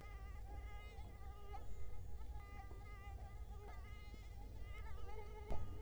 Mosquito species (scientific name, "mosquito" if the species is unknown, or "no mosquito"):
Culex quinquefasciatus